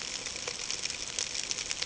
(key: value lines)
label: ambient
recorder: HydroMoth